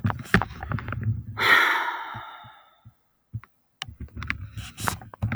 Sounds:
Sigh